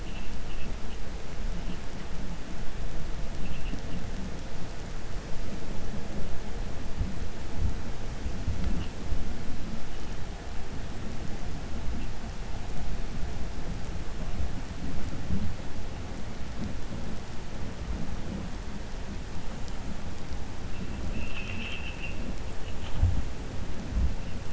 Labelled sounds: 21.1	22.2	vessel noise, 1.4 to 3.8 kHz

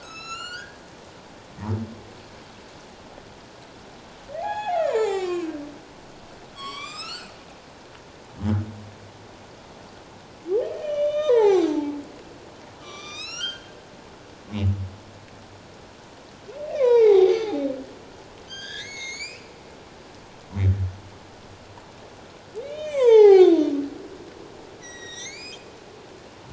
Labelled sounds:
0.0	0.8	humpback whale, 1.2 to 8.0 kHz
4.4	5.6	humpback whale, 0.78 to 7.5 kHz
6.5	7.3	humpback whale, 0.94 to 8.0 kHz
10.8	11.9	humpback whale, 0.78 to 7.8 kHz
12.8	13.7	humpback whale, 1.0 to 8.0 kHz
16.7	17.5	humpback whale, 0.78 to 6.1 kHz
18.4	19.5	humpback whale, 1.5 to 7.3 kHz
22.6	23.6	humpback whale, 0.78 to 7.9 kHz
24.8	25.7	humpback whale, 1.8 to 8.0 kHz

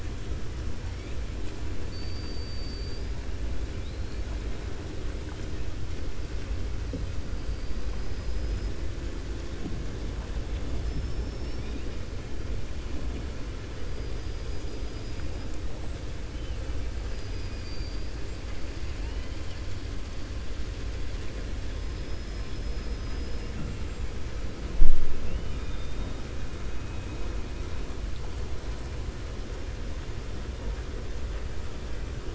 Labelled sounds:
1.8	3.1	killer whale, 4.3 to 5.2 kHz
7.9	8.7	killer whale, 4.1 to 5.4 kHz
17.1	18.1	killer whale, 4.0 to 5.6 kHz
25.2	26.1	killer whale, 2.5 to 3.8 kHz

